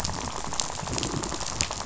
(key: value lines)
label: biophony, rattle
recorder: SoundTrap 500